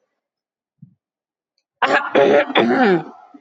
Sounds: Sigh